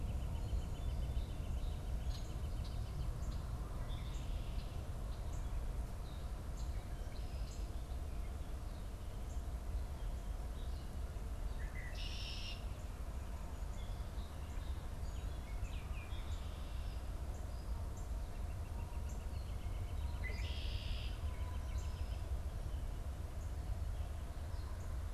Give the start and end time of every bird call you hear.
[0.00, 3.43] Northern Flicker (Colaptes auratus)
[11.43, 12.73] Red-winged Blackbird (Agelaius phoeniceus)
[14.93, 16.53] Baltimore Oriole (Icterus galbula)
[18.23, 22.23] Northern Flicker (Colaptes auratus)
[19.93, 21.23] Red-winged Blackbird (Agelaius phoeniceus)

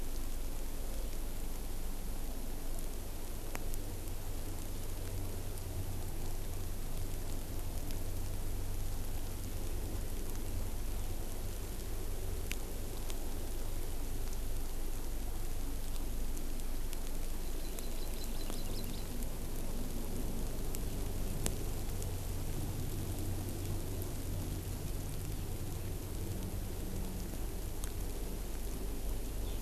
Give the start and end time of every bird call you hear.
[17.41, 19.11] Hawaii Amakihi (Chlorodrepanis virens)

